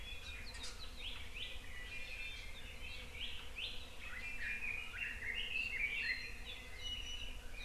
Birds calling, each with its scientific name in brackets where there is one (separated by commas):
Red-billed Leiothrix (Leiothrix lutea), Iiwi (Drepanis coccinea)